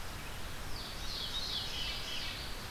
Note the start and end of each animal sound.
0.6s-2.7s: Ovenbird (Seiurus aurocapilla)
0.8s-2.5s: Veery (Catharus fuscescens)

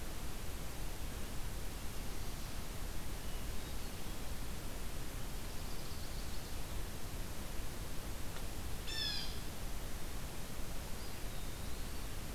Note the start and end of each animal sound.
3.0s-4.0s: Hermit Thrush (Catharus guttatus)
5.2s-6.8s: Ovenbird (Seiurus aurocapilla)
8.8s-9.3s: Blue Jay (Cyanocitta cristata)
10.8s-12.0s: Eastern Wood-Pewee (Contopus virens)

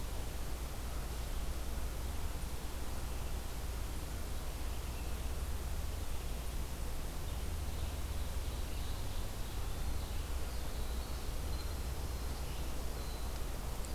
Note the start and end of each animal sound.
7.1s-9.2s: Ovenbird (Seiurus aurocapilla)
9.3s-13.7s: Winter Wren (Troglodytes hiemalis)

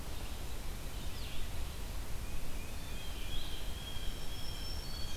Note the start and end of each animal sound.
0.0s-1.6s: Winter Wren (Troglodytes hiemalis)
1.0s-5.2s: Red-eyed Vireo (Vireo olivaceus)
2.1s-3.6s: Tufted Titmouse (Baeolophus bicolor)
2.4s-5.2s: Blue Jay (Cyanocitta cristata)
4.0s-5.2s: Black-throated Green Warbler (Setophaga virens)

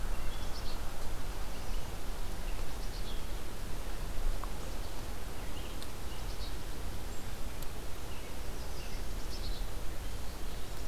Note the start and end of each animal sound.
0.0s-10.9s: Red-eyed Vireo (Vireo olivaceus)
0.2s-0.9s: Black-capped Chickadee (Poecile atricapillus)
2.7s-3.3s: Black-capped Chickadee (Poecile atricapillus)
4.4s-4.9s: Black-capped Chickadee (Poecile atricapillus)
6.1s-6.6s: Black-capped Chickadee (Poecile atricapillus)
8.2s-9.2s: American Redstart (Setophaga ruticilla)
9.1s-9.8s: Black-capped Chickadee (Poecile atricapillus)

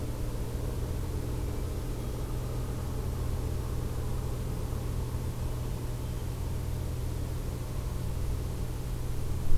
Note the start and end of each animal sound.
5.3s-6.4s: Hermit Thrush (Catharus guttatus)

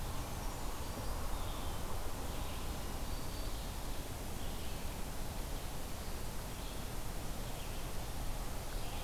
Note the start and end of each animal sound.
0.0s-1.2s: Brown Creeper (Certhia americana)
0.0s-9.0s: Red-eyed Vireo (Vireo olivaceus)
2.8s-3.7s: Black-throated Green Warbler (Setophaga virens)

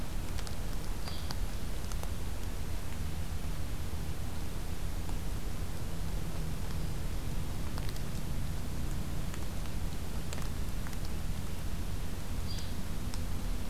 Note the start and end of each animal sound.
1.0s-1.2s: Yellow-bellied Flycatcher (Empidonax flaviventris)
12.4s-12.8s: Yellow-bellied Flycatcher (Empidonax flaviventris)

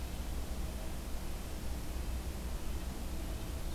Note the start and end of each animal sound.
0.0s-3.5s: Red-breasted Nuthatch (Sitta canadensis)

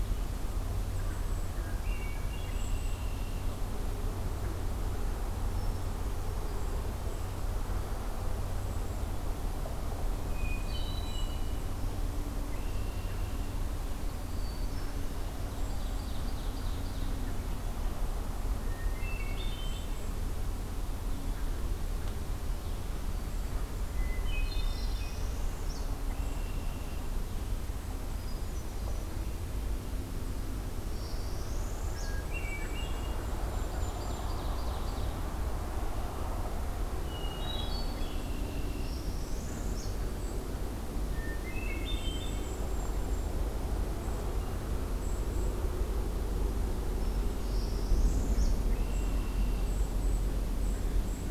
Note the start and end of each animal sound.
0.8s-1.5s: Golden-crowned Kinglet (Regulus satrapa)
1.7s-3.7s: Hermit Thrush (Catharus guttatus)
2.4s-3.1s: Golden-crowned Kinglet (Regulus satrapa)
2.9s-3.9s: Red-winged Blackbird (Agelaius phoeniceus)
6.4s-7.4s: Golden-crowned Kinglet (Regulus satrapa)
8.5s-9.1s: Golden-crowned Kinglet (Regulus satrapa)
10.1s-11.8s: Hermit Thrush (Catharus guttatus)
12.3s-13.6s: Red-winged Blackbird (Agelaius phoeniceus)
14.0s-15.2s: Hermit Thrush (Catharus guttatus)
15.3s-17.3s: Ovenbird (Seiurus aurocapilla)
18.3s-20.0s: Hermit Thrush (Catharus guttatus)
23.8s-25.4s: Hermit Thrush (Catharus guttatus)
24.5s-26.0s: Northern Parula (Setophaga americana)
25.9s-27.2s: Red-winged Blackbird (Agelaius phoeniceus)
27.8s-29.4s: Hermit Thrush (Catharus guttatus)
30.7s-32.3s: Northern Parula (Setophaga americana)
31.7s-33.3s: Hermit Thrush (Catharus guttatus)
33.0s-34.5s: Golden-crowned Kinglet (Regulus satrapa)
33.3s-35.3s: Ovenbird (Seiurus aurocapilla)
36.8s-38.9s: Hermit Thrush (Catharus guttatus)
37.9s-39.0s: Red-winged Blackbird (Agelaius phoeniceus)
38.6s-39.9s: Northern Parula (Setophaga americana)
41.0s-42.6s: Hermit Thrush (Catharus guttatus)
41.8s-43.5s: Golden-crowned Kinglet (Regulus satrapa)
44.0s-44.2s: Golden-crowned Kinglet (Regulus satrapa)
44.9s-45.5s: Golden-crowned Kinglet (Regulus satrapa)
47.3s-48.7s: Northern Parula (Setophaga americana)
48.5s-49.8s: Red-winged Blackbird (Agelaius phoeniceus)
48.8s-51.3s: Golden-crowned Kinglet (Regulus satrapa)

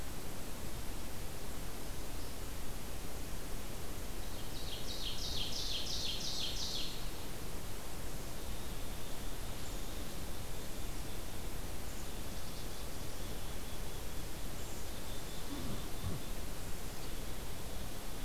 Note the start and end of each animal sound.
4.2s-7.0s: Ovenbird (Seiurus aurocapilla)
8.3s-11.3s: Black-capped Chickadee (Poecile atricapillus)
11.9s-18.2s: Black-capped Chickadee (Poecile atricapillus)

